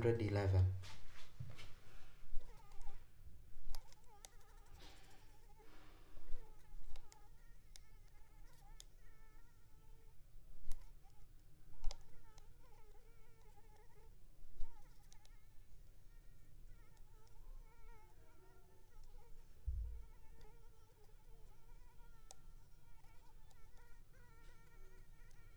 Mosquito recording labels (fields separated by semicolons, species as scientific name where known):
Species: Anopheles arabiensis; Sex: female; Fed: unfed; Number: one; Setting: cup